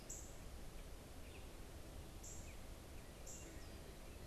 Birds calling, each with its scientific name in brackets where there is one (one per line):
Northern Cardinal (Cardinalis cardinalis)